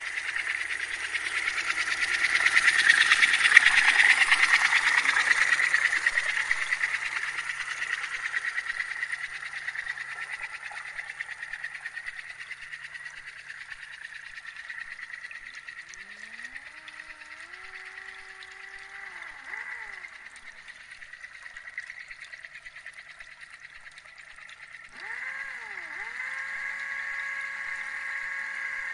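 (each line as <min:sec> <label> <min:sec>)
0:00.1 An underwater propeller slowly rotates as it moves closer to and then away from the hydrophone. 0:28.9
0:15.3 An underwater motor or engine increases and decreases in speed. 0:21.0
0:24.8 An underwater motor or engine is accelerating. 0:28.9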